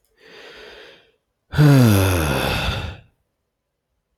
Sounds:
Sigh